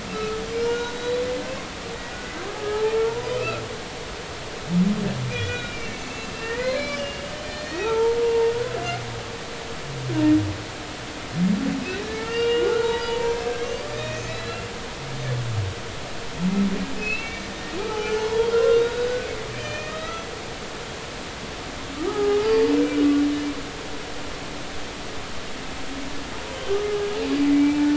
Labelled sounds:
0.1	1.3	humpback whale, 1.2 to 6.3 kHz
2.5	3.6	humpback whale, 0.80 to 5.1 kHz
5.3	8.5	humpback whale, 0.80 to 5.9 kHz
12.0	14.6	humpback whale, 0.86 to 7.0 kHz
17.0	18.8	humpback whale, 0.80 to 3.4 kHz
19.6	20.2	humpback whale, 1.2 to 6.2 kHz
22.1	23.0	humpback whale, 0.80 to 2.4 kHz
26.9	27.9	humpback whale, 1.6 to 2.4 kHz

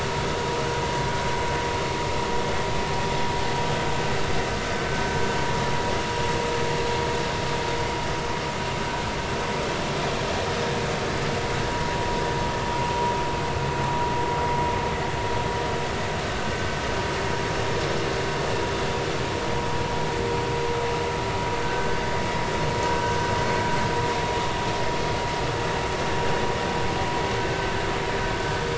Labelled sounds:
21.6	22.0	vessel noise, 1.5 to 1.6 kHz

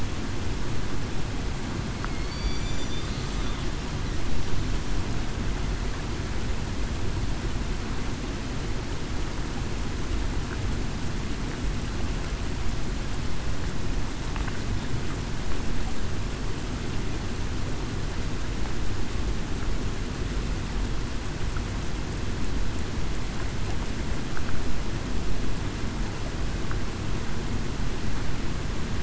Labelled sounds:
2.2	2.7	killer whale, southern resident, 4.4 to 4.8 kHz

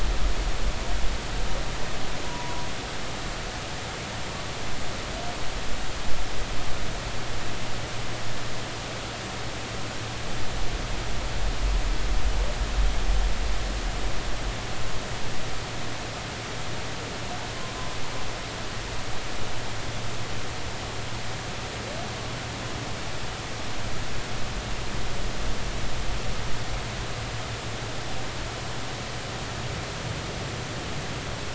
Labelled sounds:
2.2	2.7	humpback whale, 0.93 to 1.1 kHz

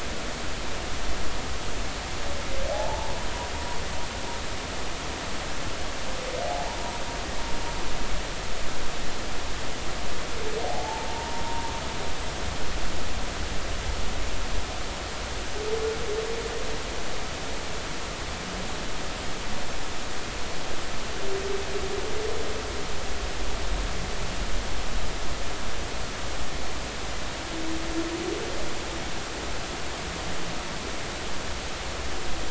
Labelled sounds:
2.7	3.1	humpback whale, 0.80 to 0.99 kHz
10.7	11.7	humpback whale, 0.80 to 1.1 kHz

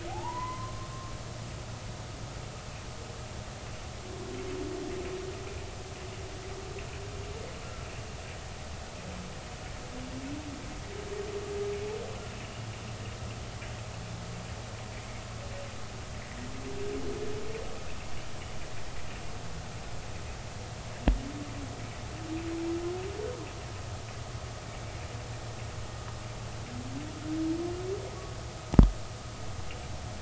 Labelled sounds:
0.1	0.9	humpback whale, 0.80 to 2.1 kHz

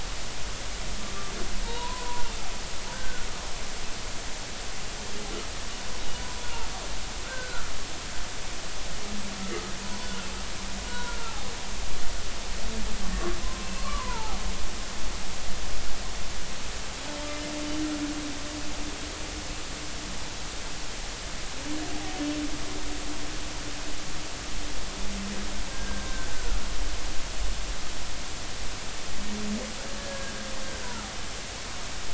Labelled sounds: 1.6	3.3	humpback whale, 0.86 to 4.1 kHz
6.4	6.7	humpback whale, 1.3 to 1.5 kHz
7.3	7.7	humpback whale, 1.2 to 1.6 kHz
9.8	11.4	humpback whale, 0.93 to 1.5 kHz
13.1	14.4	humpback whale, 0.80 to 1.5 kHz
25.7	26.3	humpback whale, 1.5 to 1.7 kHz
30.0	30.3	humpback whale, 1.6 to 1.7 kHz

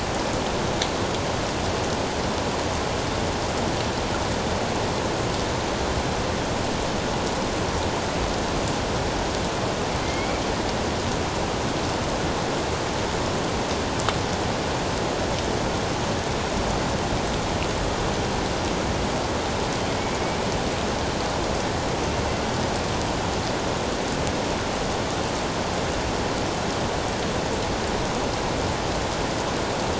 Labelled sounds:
10.0	10.4	killer whale, northern resident, A clan, AA subclan, 2.0 to 2.4 kHz

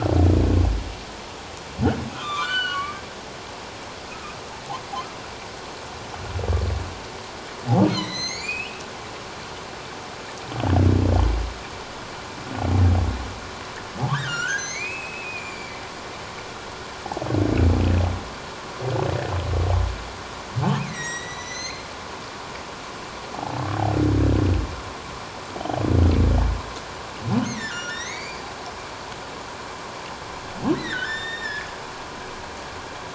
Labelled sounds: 2.1	3.0	humpback whale, 0.97 to 7.6 kHz
4.1	4.3	humpback whale, 1.2 to 1.4 kHz
7.9	8.8	humpback whale, 1.9 to 8.0 kHz
14.1	15.8	humpback whale, 1.3 to 7.4 kHz
20.9	21.9	humpback whale, 1.8 to 7.9 kHz
23.3	23.6	humpback whale, 0.78 to 0.91 kHz
25.6	25.8	humpback whale, 2.9 to 3.2 kHz
27.4	28.5	humpback whale, 1.3 to 7.3 kHz
30.7	31.7	humpback whale, 1.4 to 7.3 kHz

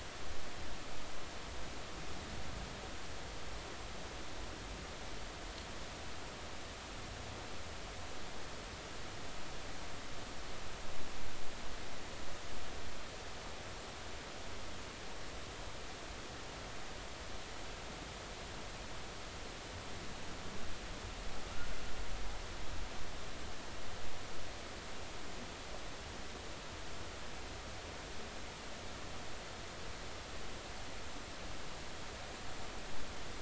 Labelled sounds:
21.5	21.8	humpback whale, 1.3 to 1.6 kHz

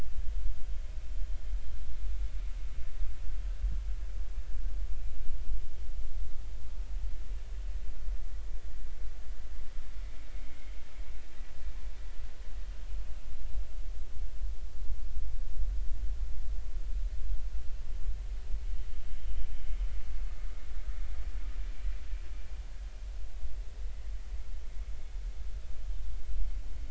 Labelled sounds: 10.3	10.7	vessel noise, 2.0 to 2.3 kHz

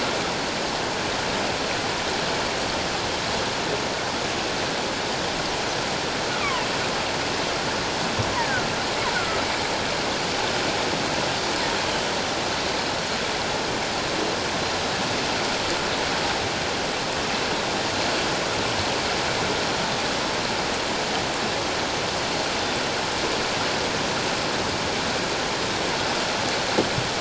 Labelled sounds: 8.4	8.7	killer whale, offshore, call OFF17, 1.4 to 2.0 kHz
9.1	9.4	killer whale, offshore, call OFF17, 1.2 to 1.6 kHz

